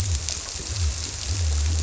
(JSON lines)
{"label": "biophony", "recorder": "SoundTrap 300"}